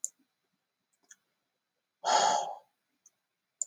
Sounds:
Sigh